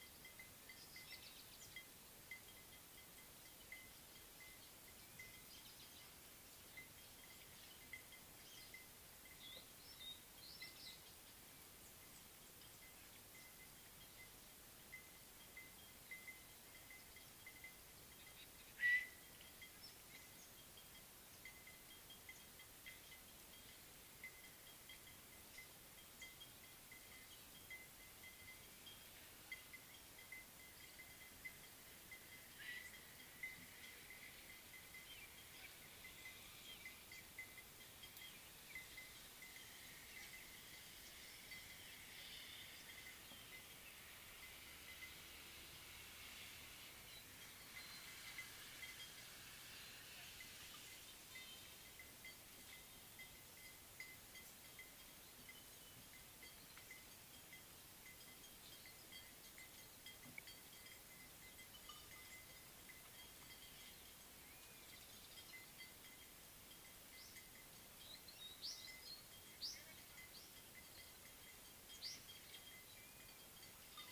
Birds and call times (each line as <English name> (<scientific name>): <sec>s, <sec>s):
Baglafecht Weaver (Ploceus baglafecht): 69.7s